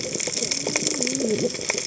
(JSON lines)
{"label": "biophony, cascading saw", "recorder": "HydroMoth"}